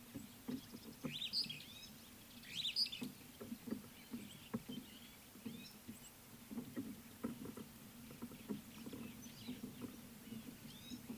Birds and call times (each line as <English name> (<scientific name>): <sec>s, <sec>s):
Superb Starling (Lamprotornis superbus): 1.4s
Gray-backed Camaroptera (Camaroptera brevicaudata): 5.6s